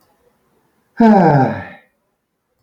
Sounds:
Sigh